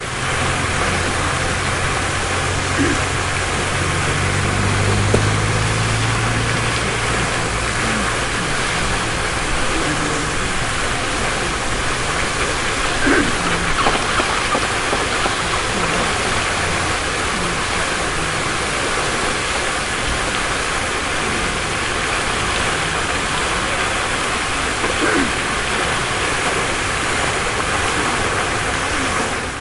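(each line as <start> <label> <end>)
0.0 Muffled sounds of people chatting continuously with occasional coughing in an open area. 29.6
0.0 Water crashes continuously in an open area. 29.6
3.5 A motor vehicle passes by, emitting a rumbling sound that increases and gradually fades away. 7.8
13.0 Birds chirp softly in an open area. 15.5
13.5 Birds flap their wings, creating a soft whooshing sound. 15.5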